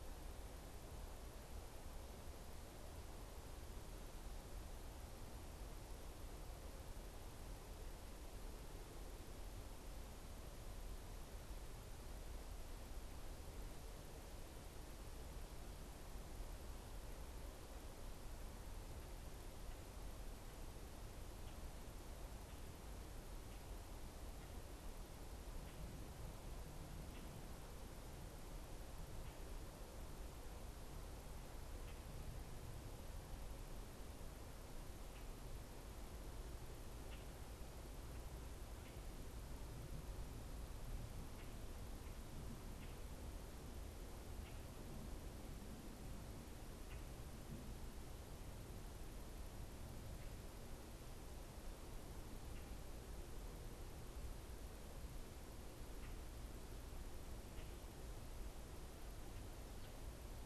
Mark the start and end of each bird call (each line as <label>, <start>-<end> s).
Common Grackle (Quiscalus quiscula), 36.9-60.4 s